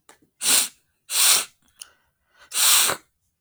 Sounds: Sniff